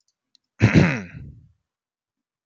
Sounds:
Throat clearing